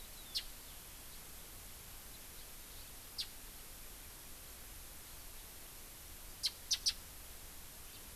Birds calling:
Japanese Bush Warbler (Horornis diphone)

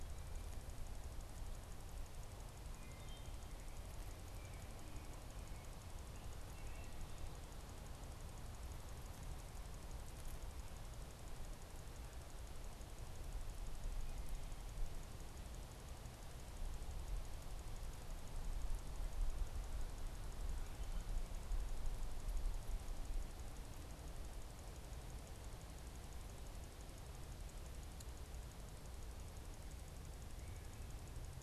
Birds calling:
American Robin (Turdus migratorius)
Wood Thrush (Hylocichla mustelina)

